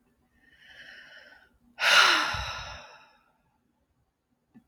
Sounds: Sigh